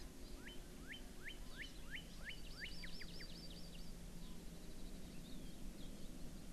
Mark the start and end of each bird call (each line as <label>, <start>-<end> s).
Northern Cardinal (Cardinalis cardinalis), 0.3-2.7 s
Hawaii Amakihi (Chlorodrepanis virens), 2.3-3.9 s